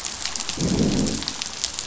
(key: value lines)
label: biophony, growl
recorder: SoundTrap 500